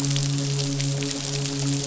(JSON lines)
{"label": "biophony, midshipman", "recorder": "SoundTrap 500"}